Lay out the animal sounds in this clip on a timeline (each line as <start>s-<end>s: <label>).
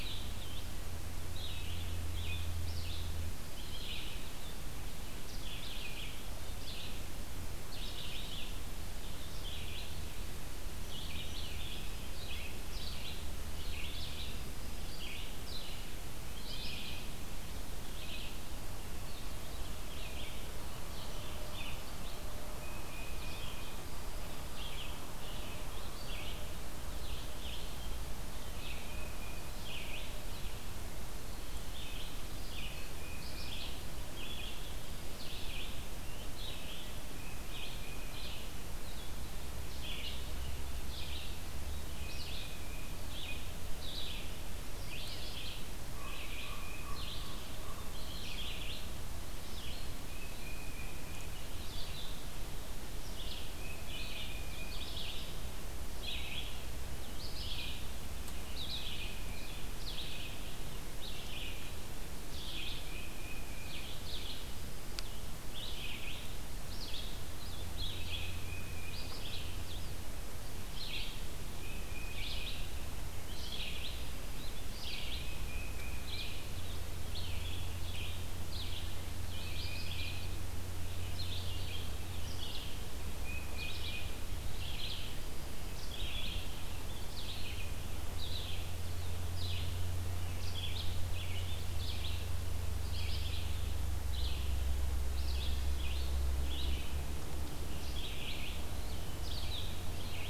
0.0s-20.4s: Red-eyed Vireo (Vireo olivaceus)
20.8s-100.3s: Red-eyed Vireo (Vireo olivaceus)
22.5s-23.9s: Tufted Titmouse (Baeolophus bicolor)
28.6s-29.6s: Tufted Titmouse (Baeolophus bicolor)
37.0s-38.5s: Tufted Titmouse (Baeolophus bicolor)
38.7s-70.3s: Blue-headed Vireo (Vireo solitarius)
41.8s-43.0s: Tufted Titmouse (Baeolophus bicolor)
45.8s-47.0s: Tufted Titmouse (Baeolophus bicolor)
45.9s-47.9s: Common Raven (Corvus corax)
50.0s-51.4s: Tufted Titmouse (Baeolophus bicolor)
53.4s-54.9s: Tufted Titmouse (Baeolophus bicolor)
58.3s-59.8s: Tufted Titmouse (Baeolophus bicolor)
62.5s-64.0s: Tufted Titmouse (Baeolophus bicolor)
67.9s-69.2s: Tufted Titmouse (Baeolophus bicolor)
71.5s-72.8s: Tufted Titmouse (Baeolophus bicolor)
74.9s-76.5s: Tufted Titmouse (Baeolophus bicolor)
79.2s-80.4s: Tufted Titmouse (Baeolophus bicolor)
83.0s-84.3s: Tufted Titmouse (Baeolophus bicolor)